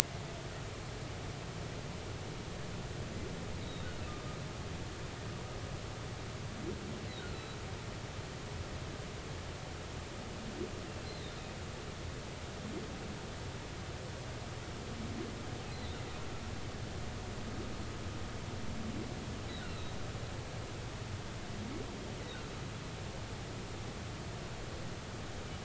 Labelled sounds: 3.6	3.9	humpback whale, 3.6 to 4.0 kHz
7.3	7.6	humpback whale, 3.9 to 4.0 kHz
11.0	11.4	humpback whale, 3.6 to 4.2 kHz
15.7	16.0	humpback whale, 3.6 to 4.2 kHz
19.7	20.0	humpback whale, 3.7 to 4.2 kHz

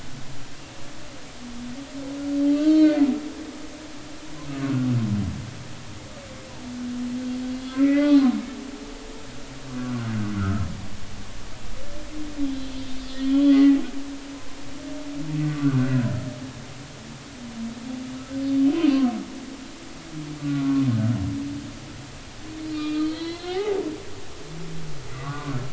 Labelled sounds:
2.5	3.1	humpback whale, 1.1 to 4.1 kHz
7.5	8.3	humpback whale, 0.80 to 4.2 kHz
9.8	10.6	humpback whale, 1.2 to 1.6 kHz
12.4	13.8	humpback whale, 1.9 to 4.8 kHz
15.4	16.0	humpback whale, 1.1 to 1.6 kHz
18.6	18.9	humpback whale, 2.9 to 3.2 kHz
20.4	20.8	humpback whale, 0.93 to 1.5 kHz
22.7	23.8	humpback whale, 0.80 to 4.5 kHz
25.1	25.6	humpback whale, 0.96 to 1.5 kHz

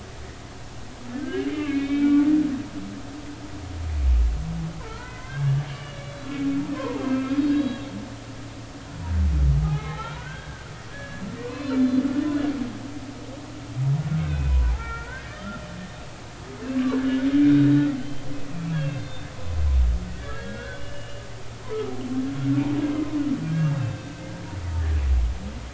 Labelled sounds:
1.2	2.3	humpback whale, 1.4 to 3.8 kHz
4.8	6.4	humpback whale, 0.83 to 3.5 kHz
6.7	7.8	humpback whale, 0.80 to 3.9 kHz
9.6	12.0	humpback whale, 0.80 to 4.2 kHz
14.2	15.6	humpback whale, 0.80 to 2.8 kHz
16.7	19.3	humpback whale, 0.99 to 3.8 kHz
20.1	21.2	humpback whale, 1.4 to 3.5 kHz
22.8	23.1	humpback whale, 2.0 to 2.1 kHz
23.5	24.2	humpback whale, 1.5 to 3.7 kHz

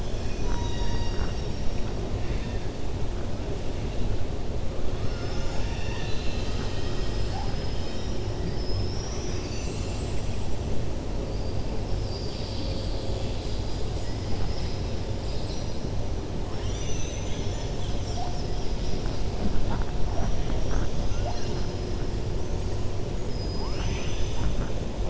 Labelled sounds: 0.0	1.6	killer whale, 0.91 to 7.5 kHz
23.1	24.7	killer whale, 0.90 to 7.5 kHz

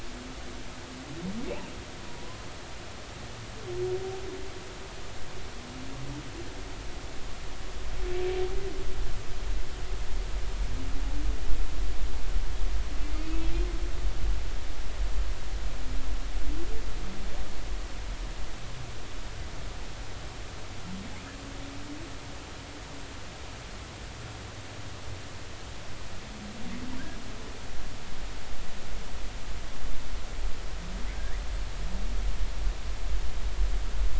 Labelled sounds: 2.1	2.4	humpback whale, 0.93 to 1.1 kHz
13.0	13.5	humpback whale, 2.0 to 2.7 kHz

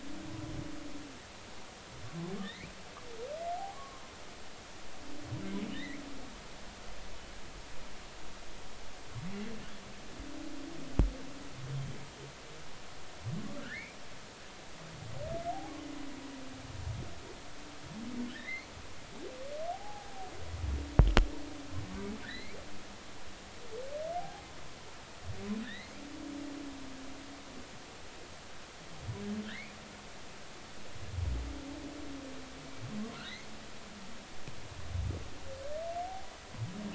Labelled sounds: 2.4	2.7	humpback whale, 1.7 to 2.7 kHz
3.7	4.0	humpback whale, 0.99 to 1.2 kHz
5.7	6.0	humpback whale, 1.7 to 2.3 kHz
13.6	14.0	humpback whale, 1.3 to 2.5 kHz
18.3	18.7	humpback whale, 1.6 to 2.3 kHz
19.7	20.3	humpback whale, 0.80 to 0.90 kHz
22.2	22.6	humpback whale, 1.4 to 4.3 kHz
24.2	24.4	humpback whale, 0.80 to 0.90 kHz
25.6	26.0	humpback whale, 1.6 to 4.4 kHz
29.4	29.8	humpback whale, 1.4 to 2.5 kHz

